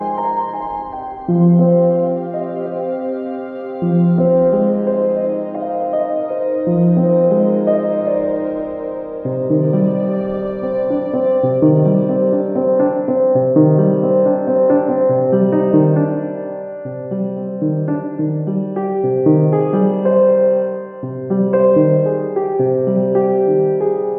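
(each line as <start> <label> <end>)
0.0 Several violins play a somber harmony as accompaniment. 12.7
0.0 A piano plays a delicate melody. 24.2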